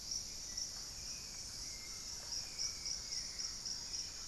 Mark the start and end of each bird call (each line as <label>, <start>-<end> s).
Buff-breasted Wren (Cantorchilus leucotis), 0.0-4.3 s
Hauxwell's Thrush (Turdus hauxwelli), 0.0-4.3 s